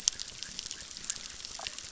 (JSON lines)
{"label": "biophony, chorus", "recorder": "SoundTrap 600"}